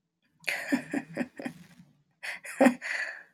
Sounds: Laughter